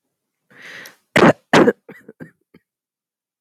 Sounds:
Cough